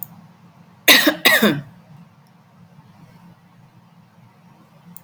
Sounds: Cough